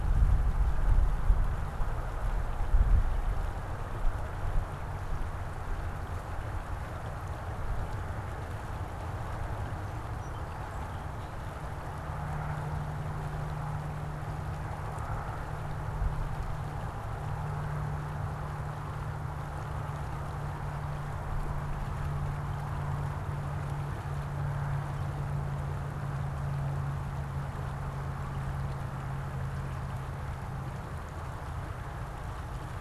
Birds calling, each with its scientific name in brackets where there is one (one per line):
Song Sparrow (Melospiza melodia)